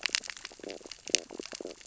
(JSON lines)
{"label": "biophony, stridulation", "recorder": "SoundTrap 600 or HydroMoth"}